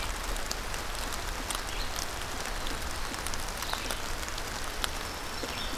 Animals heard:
Black-throated Green Warbler (Setophaga virens), Red-eyed Vireo (Vireo olivaceus)

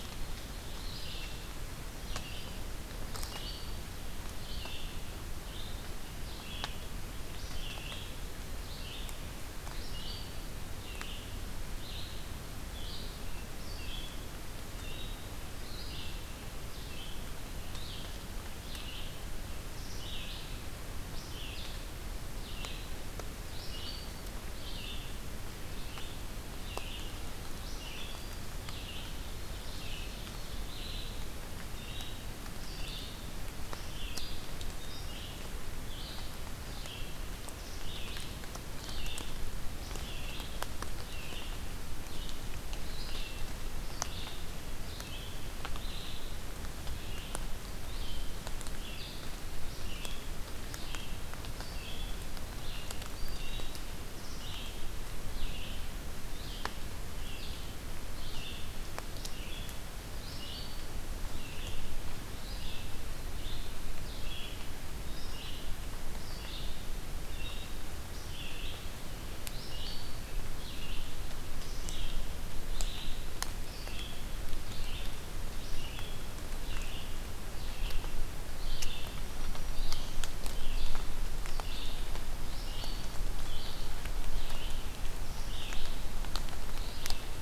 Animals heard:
Black-throated Green Warbler (Setophaga virens), Ovenbird (Seiurus aurocapilla), Red-eyed Vireo (Vireo olivaceus)

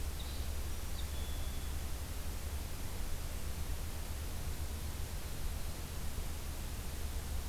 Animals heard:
Red-winged Blackbird (Agelaius phoeniceus)

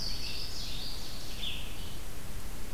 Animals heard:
Louisiana Waterthrush (Parkesia motacilla), Red-eyed Vireo (Vireo olivaceus)

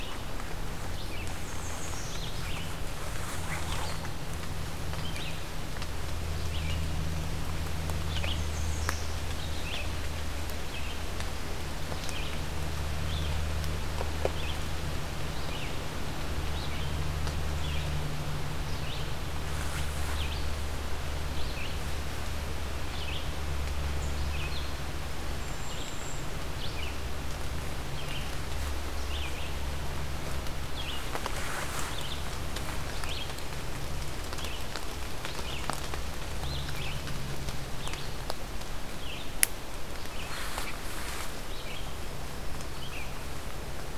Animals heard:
Golden-crowned Kinglet (Regulus satrapa), American Redstart (Setophaga ruticilla), Red-eyed Vireo (Vireo olivaceus)

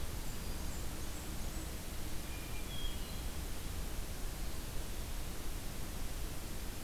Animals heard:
Hermit Thrush (Catharus guttatus), Blackburnian Warbler (Setophaga fusca)

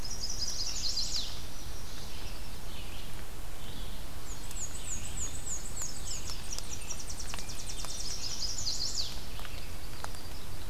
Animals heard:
Red-eyed Vireo (Vireo olivaceus), Chestnut-sided Warbler (Setophaga pensylvanica), Black-and-white Warbler (Mniotilta varia), Tennessee Warbler (Leiothlypis peregrina)

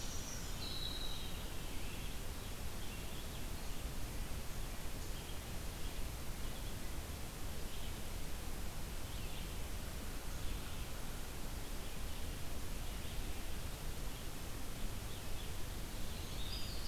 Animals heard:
Red-eyed Vireo (Vireo olivaceus), Winter Wren (Troglodytes hiemalis)

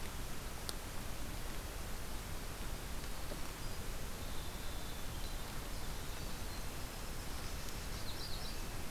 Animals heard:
Magnolia Warbler (Setophaga magnolia), Winter Wren (Troglodytes hiemalis)

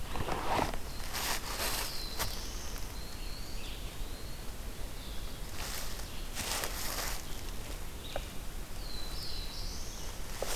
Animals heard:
Black-throated Blue Warbler (Setophaga caerulescens), Eastern Wood-Pewee (Contopus virens), Red-eyed Vireo (Vireo olivaceus)

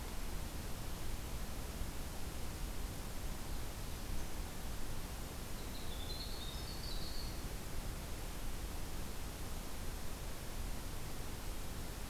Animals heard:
Winter Wren (Troglodytes hiemalis)

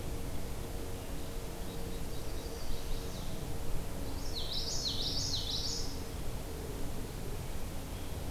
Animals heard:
Common Yellowthroat (Geothlypis trichas), Chestnut-sided Warbler (Setophaga pensylvanica)

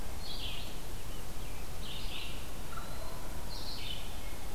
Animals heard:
Eastern Wood-Pewee (Contopus virens), Red-eyed Vireo (Vireo olivaceus), Rose-breasted Grosbeak (Pheucticus ludovicianus)

